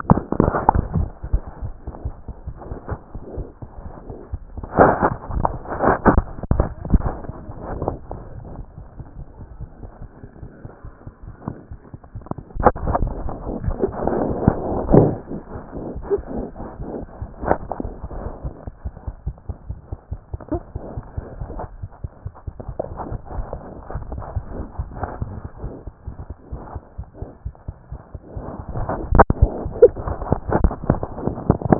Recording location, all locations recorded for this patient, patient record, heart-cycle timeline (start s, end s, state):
aortic valve (AV)
aortic valve (AV)+mitral valve (MV)
#Age: Infant
#Sex: Male
#Height: 70.0 cm
#Weight: 9.4 kg
#Pregnancy status: False
#Murmur: Absent
#Murmur locations: nan
#Most audible location: nan
#Systolic murmur timing: nan
#Systolic murmur shape: nan
#Systolic murmur grading: nan
#Systolic murmur pitch: nan
#Systolic murmur quality: nan
#Diastolic murmur timing: nan
#Diastolic murmur shape: nan
#Diastolic murmur grading: nan
#Diastolic murmur pitch: nan
#Diastolic murmur quality: nan
#Outcome: Normal
#Campaign: 2014 screening campaign
0.00	18.84	unannotated
18.84	18.94	S1
18.94	19.08	systole
19.08	19.14	S2
19.14	19.26	diastole
19.26	19.36	S1
19.36	19.48	systole
19.48	19.56	S2
19.56	19.70	diastole
19.70	19.78	S1
19.78	19.92	systole
19.92	19.98	S2
19.98	20.12	diastole
20.12	20.20	S1
20.20	20.32	systole
20.32	20.38	S2
20.38	20.52	diastole
20.52	20.60	S1
20.60	20.76	systole
20.76	20.82	S2
20.82	20.96	diastole
20.96	21.04	S1
21.04	21.18	systole
21.18	21.25	S2
21.25	21.42	diastole
21.42	21.50	S1
21.50	21.64	systole
21.64	21.70	S2
21.70	21.84	diastole
21.84	21.90	S1
21.90	22.04	systole
22.04	22.08	S2
22.08	22.26	diastole
22.26	31.79	unannotated